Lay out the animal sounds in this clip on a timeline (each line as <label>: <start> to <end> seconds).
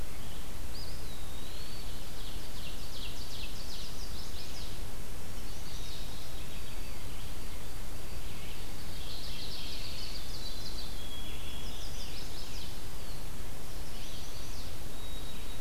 Red-eyed Vireo (Vireo olivaceus): 0.0 to 15.6 seconds
Eastern Wood-Pewee (Contopus virens): 0.5 to 2.2 seconds
Ovenbird (Seiurus aurocapilla): 1.8 to 4.4 seconds
Chestnut-sided Warbler (Setophaga pensylvanica): 3.4 to 6.0 seconds
White-throated Sparrow (Zonotrichia albicollis): 5.8 to 9.1 seconds
Mourning Warbler (Geothlypis philadelphia): 8.5 to 10.3 seconds
Ovenbird (Seiurus aurocapilla): 9.3 to 11.2 seconds
White-throated Sparrow (Zonotrichia albicollis): 9.8 to 12.0 seconds
Chestnut-sided Warbler (Setophaga pensylvanica): 11.4 to 12.8 seconds
Eastern Wood-Pewee (Contopus virens): 12.5 to 13.4 seconds
Chestnut-sided Warbler (Setophaga pensylvanica): 13.6 to 14.8 seconds
White-throated Sparrow (Zonotrichia albicollis): 14.9 to 15.6 seconds